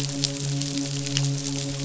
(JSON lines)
{"label": "biophony, midshipman", "recorder": "SoundTrap 500"}